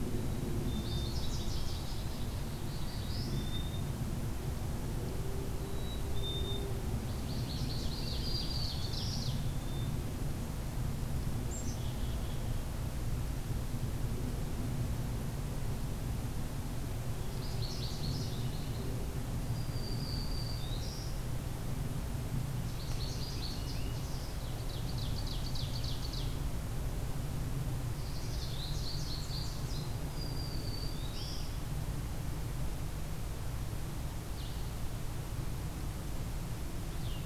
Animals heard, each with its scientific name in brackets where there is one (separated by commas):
American Goldfinch (Spinus tristis), Blue-headed Vireo (Vireo solitarius), Black-throated Blue Warbler (Setophaga caerulescens), Ovenbird (Seiurus aurocapilla), Black-capped Chickadee (Poecile atricapillus), Black-throated Green Warbler (Setophaga virens)